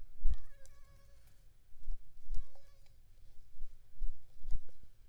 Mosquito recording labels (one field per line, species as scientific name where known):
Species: Anopheles gambiae s.l.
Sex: female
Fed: unfed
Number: one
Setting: cup